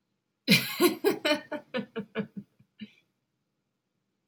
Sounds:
Laughter